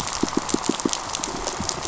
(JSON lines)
{"label": "biophony, pulse", "recorder": "SoundTrap 500"}